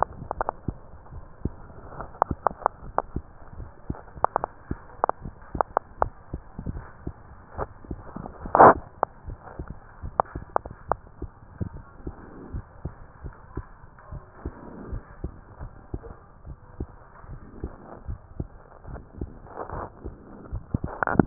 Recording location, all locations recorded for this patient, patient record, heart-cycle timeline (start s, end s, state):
mitral valve (MV)
aortic valve (AV)+pulmonary valve (PV)+tricuspid valve (TV)+mitral valve (MV)
#Age: Child
#Sex: Female
#Height: 123.0 cm
#Weight: 33.1 kg
#Pregnancy status: False
#Murmur: Absent
#Murmur locations: nan
#Most audible location: nan
#Systolic murmur timing: nan
#Systolic murmur shape: nan
#Systolic murmur grading: nan
#Systolic murmur pitch: nan
#Systolic murmur quality: nan
#Diastolic murmur timing: nan
#Diastolic murmur shape: nan
#Diastolic murmur grading: nan
#Diastolic murmur pitch: nan
#Diastolic murmur quality: nan
#Outcome: Normal
#Campaign: 2015 screening campaign
0.00	12.16	unannotated
12.16	12.52	diastole
12.52	12.66	S1
12.66	12.81	systole
12.81	12.91	S2
12.91	13.21	diastole
13.21	13.33	S1
13.33	13.55	systole
13.55	13.66	S2
13.66	14.10	diastole
14.10	14.24	S1
14.24	14.43	systole
14.43	14.54	S2
14.54	14.92	diastole
14.92	15.02	S1
15.02	15.22	systole
15.22	15.33	S2
15.33	15.59	diastole
15.59	15.72	S1
15.72	15.91	systole
15.91	16.02	S2
16.02	16.44	diastole
16.44	16.58	S1
16.58	16.78	systole
16.78	16.88	S2
16.88	17.32	diastole
17.32	17.42	S1
17.42	17.62	systole
17.62	17.74	S2
17.74	18.08	diastole
18.08	18.20	S1
18.20	18.37	systole
18.37	18.50	S2
18.50	18.88	diastole
18.88	19.02	S1
19.02	19.20	systole
19.20	19.32	S2
19.32	19.72	diastole
19.72	19.86	S1
19.86	20.04	systole
20.04	20.16	S2
20.16	20.47	diastole
20.47	21.26	unannotated